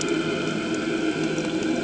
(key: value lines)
label: anthrophony, boat engine
recorder: HydroMoth